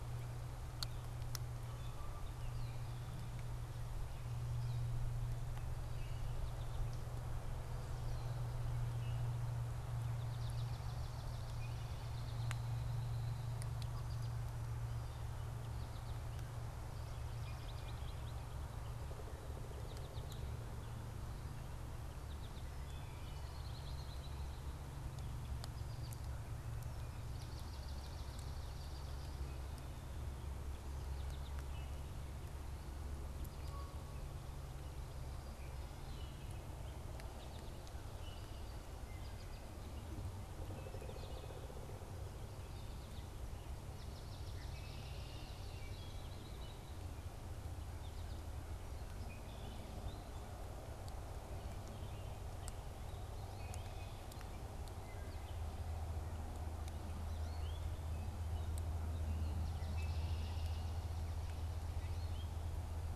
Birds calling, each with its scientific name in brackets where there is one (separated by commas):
Canada Goose (Branta canadensis), Pileated Woodpecker (Dryocopus pileatus), Gray Catbird (Dumetella carolinensis), Swamp Sparrow (Melospiza georgiana), Wood Thrush (Hylocichla mustelina), American Goldfinch (Spinus tristis), Red-winged Blackbird (Agelaius phoeniceus)